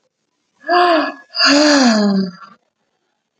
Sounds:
Sigh